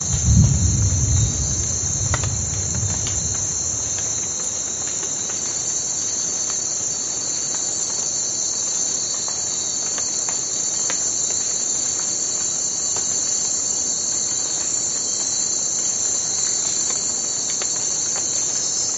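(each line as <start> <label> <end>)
0.0 Nighttime ambiance noise. 19.0
0.1 Crickets chirping in the distance. 19.0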